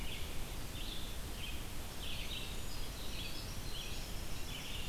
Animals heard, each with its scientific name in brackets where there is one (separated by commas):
Red-eyed Vireo (Vireo olivaceus), Winter Wren (Troglodytes hiemalis)